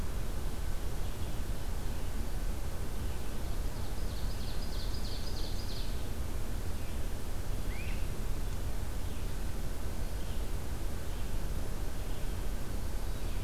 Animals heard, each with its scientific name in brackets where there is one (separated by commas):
Ovenbird (Seiurus aurocapilla), Great Crested Flycatcher (Myiarchus crinitus), Red-eyed Vireo (Vireo olivaceus)